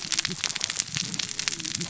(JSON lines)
{"label": "biophony, cascading saw", "recorder": "SoundTrap 600 or HydroMoth"}